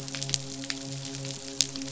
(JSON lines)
{"label": "biophony, midshipman", "recorder": "SoundTrap 500"}